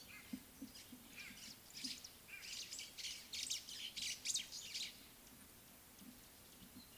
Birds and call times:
White-browed Sparrow-Weaver (Plocepasser mahali): 3.5s

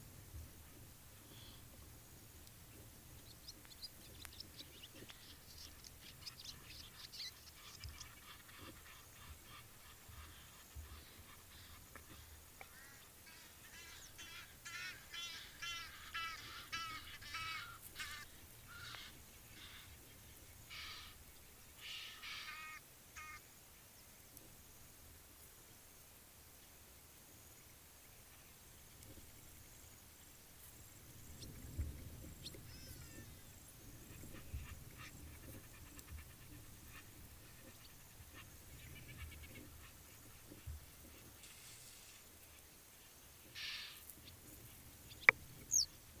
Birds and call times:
Egyptian Goose (Alopochen aegyptiaca): 8.9s, 15.2s, 17.4s, 20.9s, 22.6s, 36.9s, 43.8s
Hadada Ibis (Bostrychia hagedash): 33.0s

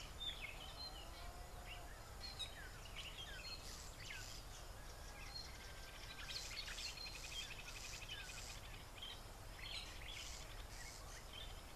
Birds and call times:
Black-backed Puffback (Dryoscopus cubla): 7.7s

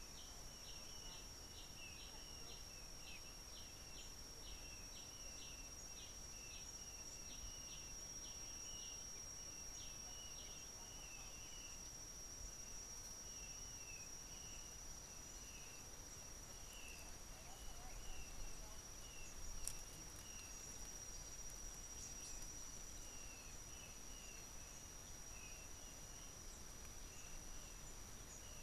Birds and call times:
Kikuyu White-eye (Zosterops kikuyuensis): 1.9s, 8.8s, 16.9s, 25.4s
Yellow-whiskered Greenbul (Eurillas latirostris): 7.3s

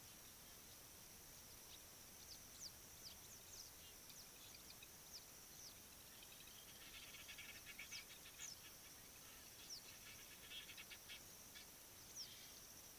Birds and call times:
Egyptian Goose (Alopochen aegyptiaca): 7.6s

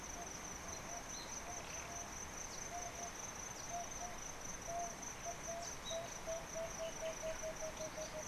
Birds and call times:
Emerald-spotted Wood-Dove (Turtur chalcospilos): 4.8s, 6.6s

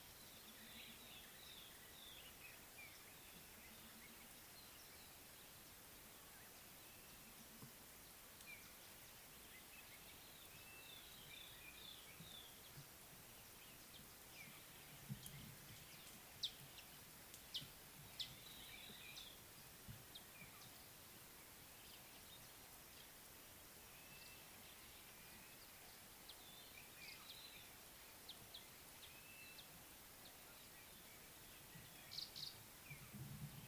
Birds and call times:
Scarlet-chested Sunbird (Chalcomitra senegalensis): 17.6s
Kenya Rufous Sparrow (Passer rufocinctus): 32.3s

